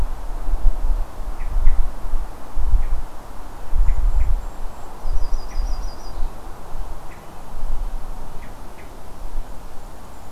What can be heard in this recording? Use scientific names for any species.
Catharus guttatus, Regulus satrapa, Setophaga coronata